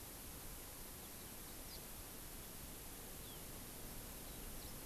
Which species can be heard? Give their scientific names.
Crithagra mozambica